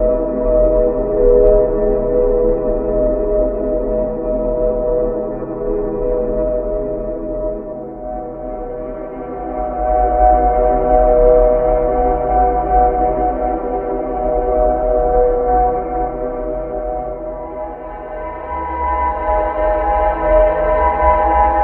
What genre of movie could this be used in?
horror